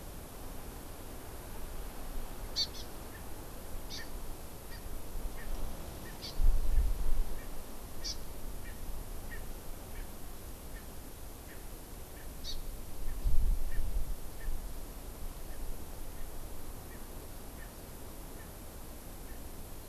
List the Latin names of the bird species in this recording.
Chlorodrepanis virens, Pternistis erckelii